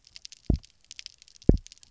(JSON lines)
{"label": "biophony, double pulse", "recorder": "SoundTrap 300"}